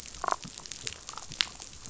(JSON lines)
{"label": "biophony, damselfish", "recorder": "SoundTrap 500"}